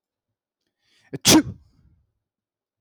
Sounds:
Sneeze